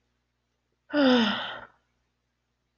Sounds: Sigh